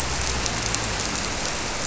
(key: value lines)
label: biophony
recorder: SoundTrap 300